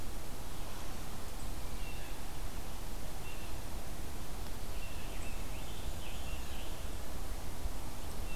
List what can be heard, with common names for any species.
Blue Jay, Scarlet Tanager